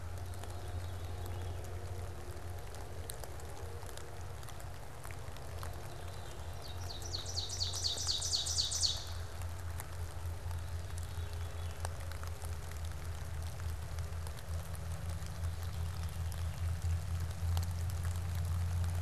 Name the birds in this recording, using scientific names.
Catharus fuscescens, Seiurus aurocapilla